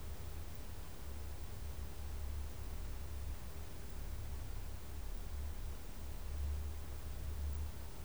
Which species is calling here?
Poecilimon hamatus